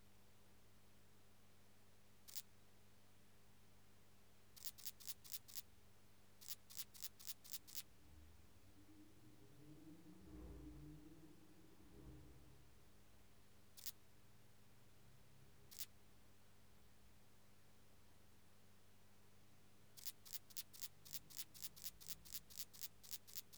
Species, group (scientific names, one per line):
Tessellana lagrecai
Orthoptera